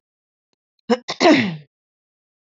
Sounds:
Throat clearing